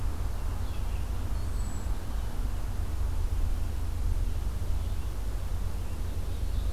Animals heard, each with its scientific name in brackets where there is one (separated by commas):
Red-eyed Vireo (Vireo olivaceus), Hermit Thrush (Catharus guttatus)